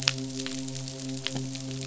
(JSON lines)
{"label": "biophony, midshipman", "recorder": "SoundTrap 500"}